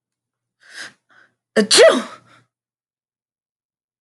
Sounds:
Sneeze